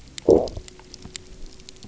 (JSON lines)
{"label": "biophony, low growl", "recorder": "SoundTrap 300"}